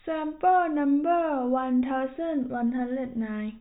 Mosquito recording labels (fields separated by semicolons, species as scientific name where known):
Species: no mosquito; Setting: cup